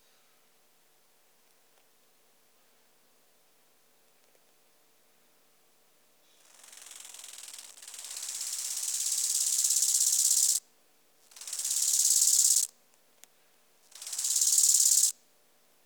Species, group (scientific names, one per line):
Chorthippus biguttulus
Orthoptera